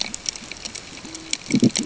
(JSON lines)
{"label": "ambient", "recorder": "HydroMoth"}